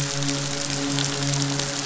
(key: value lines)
label: biophony, midshipman
recorder: SoundTrap 500